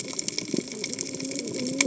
{"label": "biophony, cascading saw", "recorder": "HydroMoth"}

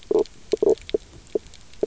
{"label": "biophony, knock croak", "recorder": "SoundTrap 300"}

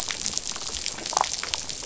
{"label": "biophony, damselfish", "recorder": "SoundTrap 500"}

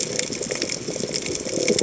{"label": "biophony", "recorder": "HydroMoth"}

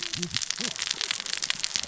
{"label": "biophony, cascading saw", "recorder": "SoundTrap 600 or HydroMoth"}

